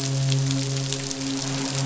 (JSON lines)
{"label": "biophony, midshipman", "recorder": "SoundTrap 500"}